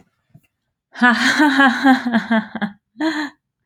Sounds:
Laughter